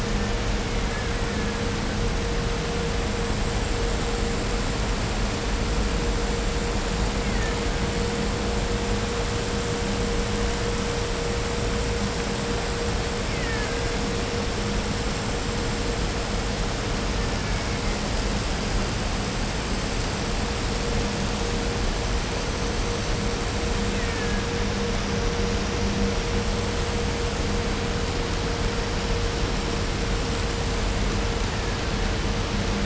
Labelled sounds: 0.0	2.1	killer whale, Bigg's (transient), 0.76 to 3.1 kHz
7.0	8.0	killer whale, Bigg's (transient), 0.62 to 3.2 kHz
13.3	14.1	killer whale, Bigg's (transient), 0.72 to 3.7 kHz
17.0	18.1	killer whale, Bigg's (transient), 0.78 to 3.0 kHz
23.8	24.9	killer whale, Bigg's (transient), 0.94 to 4.2 kHz
31.4	32.3	killer whale, Bigg's (transient), 0.88 to 2.2 kHz

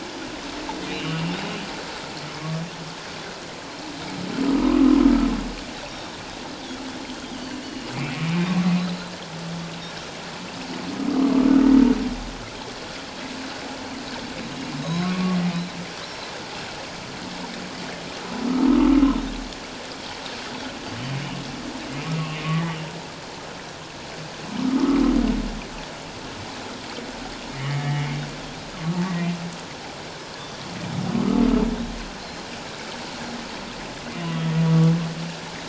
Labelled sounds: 0.9	1.2	humpback whale, 2.7 to 3.1 kHz
4.6	5.0	humpback whale, 0.94 to 1.2 kHz
5.8	6.2	Pacific white-sided dolphin, 3.6 to 5.8 kHz
7.4	7.9	Pacific white-sided dolphin, 2.7 to 3.1 kHz
8.5	8.7	humpback whale, 1.0 to 1.2 kHz
8.8	9.1	Pacific white-sided dolphin, 3.8 to 4.2 kHz
14.4	14.7	humpback whale, 3.8 to 4.0 kHz
14.8	15.4	Pacific white-sided dolphin, 0.97 to 4.0 kHz
18.7	18.9	humpback whale, 1.1 to 1.3 kHz
21.9	22.8	humpback whale, 1.1 to 2.6 kHz
24.6	25.0	humpback whale, 1.0 to 1.4 kHz
27.5	28.2	humpback whale, 1.8 to 3.0 kHz
32.2	32.4	Pacific white-sided dolphin, 4.1 to 4.3 kHz
34.6	34.9	humpback whale, 1.1 to 1.2 kHz

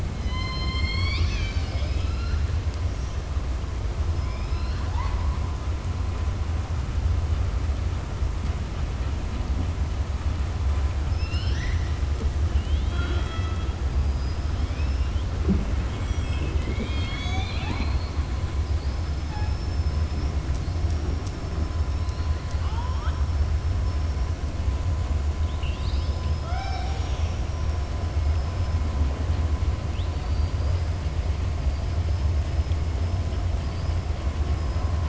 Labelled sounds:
11.1	11.9	killer whale, southern resident, 1.6 to 6.0 kHz
22.4	23.2	killer whale, southern resident, 0.87 to 7.9 kHz

